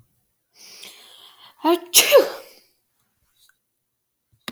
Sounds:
Sneeze